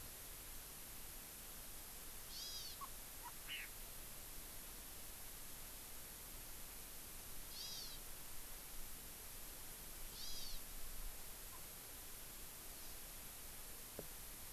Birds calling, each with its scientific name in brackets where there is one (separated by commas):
Hawaii Amakihi (Chlorodrepanis virens), Chinese Hwamei (Garrulax canorus)